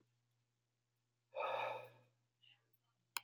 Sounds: Sigh